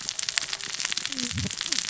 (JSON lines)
{"label": "biophony, cascading saw", "recorder": "SoundTrap 600 or HydroMoth"}